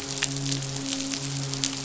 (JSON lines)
{"label": "biophony, midshipman", "recorder": "SoundTrap 500"}